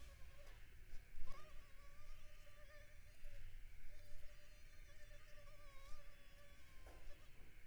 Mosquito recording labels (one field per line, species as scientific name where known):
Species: Culex pipiens complex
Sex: female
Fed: unfed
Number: one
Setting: cup